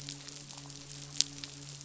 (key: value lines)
label: biophony, midshipman
recorder: SoundTrap 500